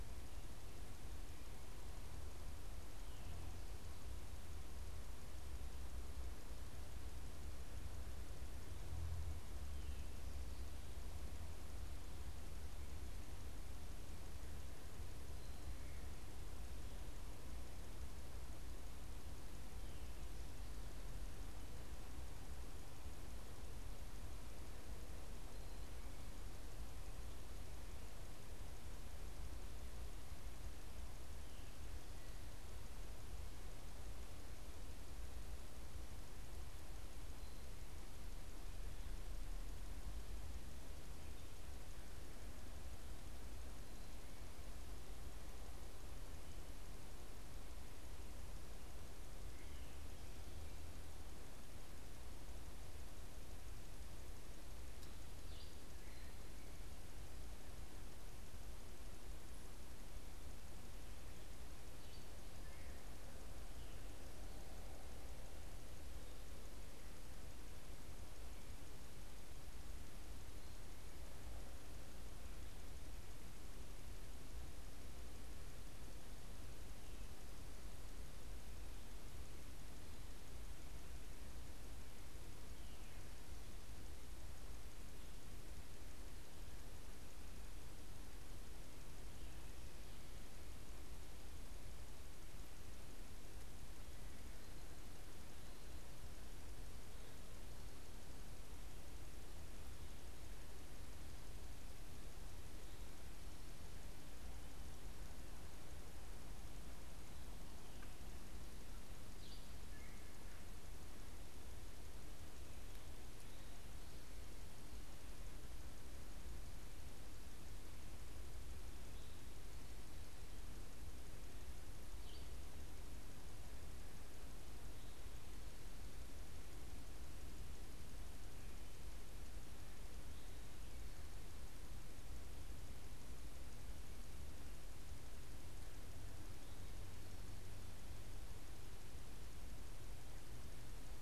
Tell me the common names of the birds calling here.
unidentified bird